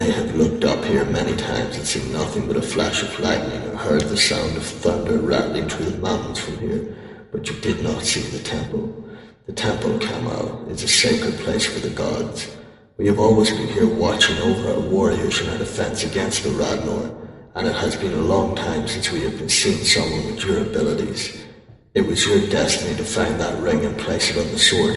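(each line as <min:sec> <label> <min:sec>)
0:00.0 A man is speaking in a metallic voice. 0:25.0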